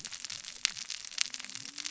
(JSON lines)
{"label": "biophony, cascading saw", "recorder": "SoundTrap 600 or HydroMoth"}